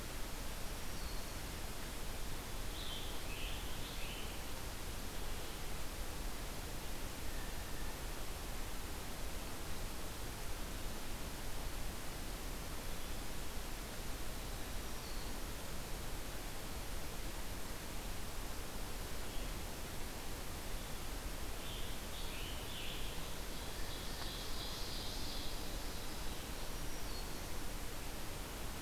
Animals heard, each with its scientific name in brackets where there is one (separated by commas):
Red-eyed Vireo (Vireo olivaceus), Ovenbird (Seiurus aurocapilla), Black-throated Green Warbler (Setophaga virens), Scarlet Tanager (Piranga olivacea)